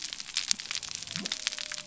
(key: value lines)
label: biophony
recorder: SoundTrap 300